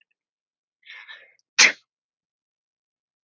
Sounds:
Sneeze